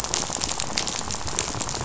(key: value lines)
label: biophony, rattle
recorder: SoundTrap 500